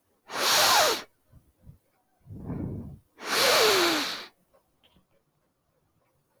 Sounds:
Sniff